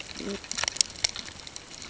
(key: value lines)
label: ambient
recorder: HydroMoth